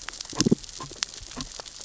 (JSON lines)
{"label": "biophony, damselfish", "recorder": "SoundTrap 600 or HydroMoth"}